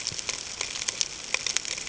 {"label": "ambient", "recorder": "HydroMoth"}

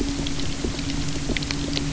{"label": "anthrophony, boat engine", "recorder": "SoundTrap 300"}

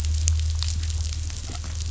{"label": "anthrophony, boat engine", "recorder": "SoundTrap 500"}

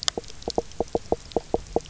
{"label": "biophony, knock croak", "recorder": "SoundTrap 300"}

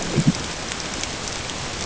{"label": "ambient", "recorder": "HydroMoth"}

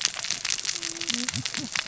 {"label": "biophony, cascading saw", "recorder": "SoundTrap 600 or HydroMoth"}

